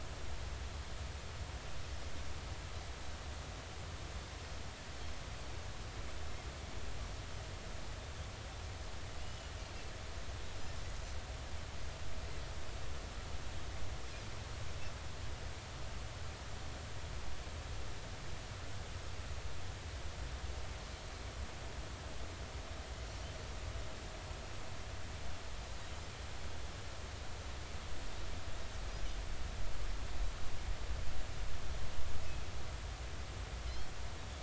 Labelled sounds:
9.2	9.5	Pacific white-sided dolphin, 2.8 to 3.0 kHz

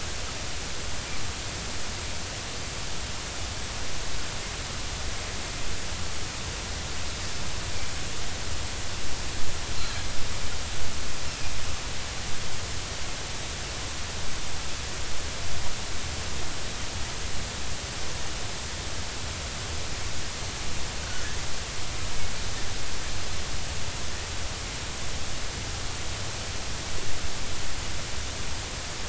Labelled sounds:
21.0	21.3	Pacific white-sided dolphin, 1.4 to 1.6 kHz

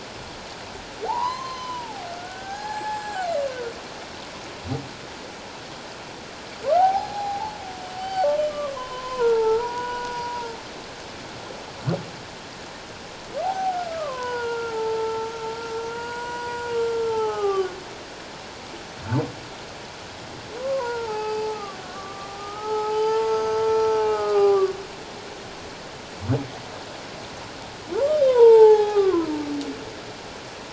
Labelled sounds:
1.1	3.3	humpback whale, 0.78 to 7.7 kHz
6.7	7.6	humpback whale, 0.78 to 4.2 kHz
8.0	10.6	humpback whale, 0.81 to 4.7 kHz
13.4	15.3	humpback whale, 0.78 to 3.0 kHz
15.9	17.8	humpback whale, 0.78 to 7.5 kHz
20.6	24.7	humpback whale, 0.78 to 6.5 kHz
28.2	29.3	humpback whale, 0.78 to 3.8 kHz

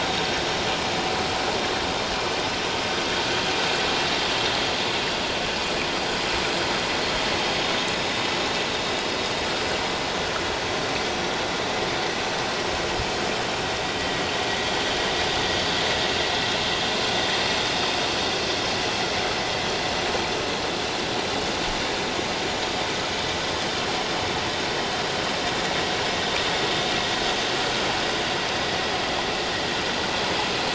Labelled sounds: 27.3	27.6	vessel noise, 6.0 to 6.2 kHz

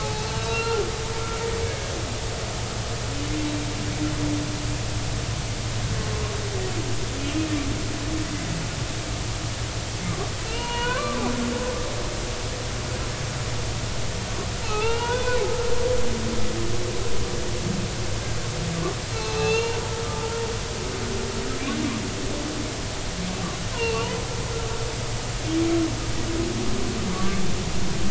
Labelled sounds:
0.0	0.8	humpback whale, 0.80 to 2.8 kHz
10.4	11.2	humpback whale, 0.90 to 3.0 kHz
14.6	15.4	humpback whale, 0.80 to 2.9 kHz
19.4	19.8	humpback whale, 0.86 to 4.2 kHz
20.1	20.4	humpback whale, 0.83 to 0.93 kHz
23.7	24.2	humpback whale, 0.86 to 3.1 kHz

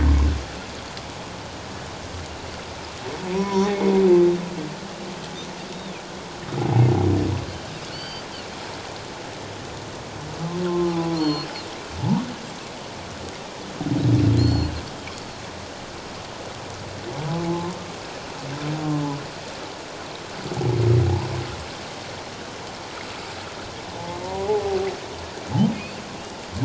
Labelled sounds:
3.3	3.9	humpback whale, 0.88 to 5.8 kHz
7.9	8.3	Pacific white-sided dolphin, 2.9 to 4.7 kHz
10.6	11.2	humpback whale, 0.78 to 1.1 kHz
11.1	11.5	Pacific white-sided dolphin, 2.7 to 4.4 kHz
14.4	15.4	Pacific white-sided dolphin, 4.0 to 7.3 kHz
17.3	17.8	humpback whale, 0.81 to 1.1 kHz
23.9	24.7	humpback whale, 0.78 to 1.2 kHz
25.7	26.0	humpback whale, 2.1 to 2.8 kHz

